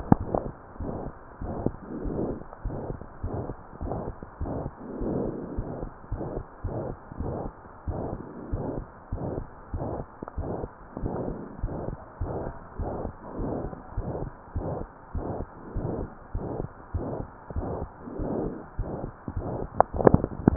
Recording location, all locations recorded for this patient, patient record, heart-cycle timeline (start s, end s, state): pulmonary valve (PV)
aortic valve (AV)+pulmonary valve (PV)+tricuspid valve (TV)+mitral valve (MV)
#Age: Child
#Sex: Female
#Height: 128.0 cm
#Weight: 37.0 kg
#Pregnancy status: False
#Murmur: Present
#Murmur locations: aortic valve (AV)+mitral valve (MV)+pulmonary valve (PV)+tricuspid valve (TV)
#Most audible location: pulmonary valve (PV)
#Systolic murmur timing: Holosystolic
#Systolic murmur shape: Plateau
#Systolic murmur grading: II/VI
#Systolic murmur pitch: Medium
#Systolic murmur quality: Blowing
#Diastolic murmur timing: nan
#Diastolic murmur shape: nan
#Diastolic murmur grading: nan
#Diastolic murmur pitch: nan
#Diastolic murmur quality: nan
#Outcome: Abnormal
#Campaign: 2015 screening campaign
0.00	0.52	unannotated
0.52	0.79	diastole
0.79	0.87	S1
0.87	1.04	systole
1.04	1.14	S2
1.14	1.42	diastole
1.42	1.49	S1
1.49	1.62	systole
1.62	1.74	S2
1.74	2.02	diastole
2.02	2.16	S1
2.16	2.22	systole
2.22	2.38	S2
2.38	2.63	diastole
2.63	2.75	S1
2.75	2.88	systole
2.88	2.97	S2
2.97	3.23	diastole
3.23	3.32	S1
3.32	3.47	systole
3.47	3.56	S2
3.56	3.81	diastole
3.81	3.89	S1
3.89	4.06	systole
4.06	4.14	S2
4.14	4.39	diastole
4.39	4.48	S1
4.48	4.64	systole
4.64	4.72	S2
4.72	4.99	diastole
4.99	5.08	S1
5.08	5.23	systole
5.23	5.34	S2
5.34	5.56	diastole
5.56	5.66	S1
5.66	5.76	systole
5.76	5.88	S2
5.88	6.09	diastole
6.09	6.19	S1
6.19	6.34	systole
6.34	6.44	S2
6.44	6.62	diastole
6.62	6.70	S1
6.70	6.88	systole
6.88	6.96	S2
6.96	7.18	diastole
7.18	7.27	S1
7.27	7.42	systole
7.42	7.52	S2
7.52	7.86	diastole
7.86	7.95	S1
7.95	8.10	systole
8.10	8.20	S2
8.20	8.50	diastole
8.50	8.60	S1
8.60	8.76	systole
8.76	8.88	S2
8.88	9.09	diastole
9.09	9.20	S1
9.20	9.36	systole
9.36	9.46	S2
9.46	9.72	diastole
9.72	9.84	S1
9.84	9.96	systole
9.96	10.06	S2
10.06	10.35	diastole
10.35	10.46	S1
10.46	10.60	systole
10.60	10.68	S2
10.68	11.02	diastole
11.02	11.13	S1
11.13	11.24	systole
11.24	11.38	S2
11.38	11.62	diastole
11.62	11.70	S1
11.70	11.86	systole
11.86	12.00	S2
12.00	12.20	diastole
12.20	12.28	S1
12.28	12.45	systole
12.45	12.54	S2
12.54	12.78	diastole
12.78	12.87	S1
12.87	13.00	systole
13.00	13.12	S2
13.12	13.38	diastole
13.38	13.48	S1
13.48	13.63	systole
13.63	13.70	S2
13.70	13.96	diastole
13.96	14.04	S1
14.04	14.20	systole
14.20	14.34	S2
14.34	14.54	diastole
14.54	14.64	S1
14.64	14.79	systole
14.79	14.87	S2
14.87	15.14	diastole
15.14	15.23	S1
15.23	15.38	systole
15.38	15.48	S2
15.48	15.74	diastole
15.74	15.83	S1
15.83	15.96	systole
15.96	16.08	S2
16.08	16.33	diastole
16.33	16.43	S1
16.43	16.58	systole
16.58	16.68	S2
16.68	16.93	diastole
16.93	17.01	S1
17.01	17.18	systole
17.18	17.28	S2
17.28	17.54	diastole
17.54	17.64	S1
17.64	17.80	systole
17.80	17.90	S2
17.90	18.18	diastole
18.18	18.27	S1
18.27	18.42	systole
18.42	18.54	S2
18.54	18.77	diastole
18.77	18.85	S1
18.85	19.00	systole
19.00	19.12	S2
19.12	19.35	diastole
19.35	19.45	S1
19.45	19.59	systole
19.59	19.68	S2
19.68	19.93	diastole
19.93	20.56	unannotated